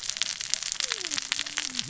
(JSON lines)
{"label": "biophony, cascading saw", "recorder": "SoundTrap 600 or HydroMoth"}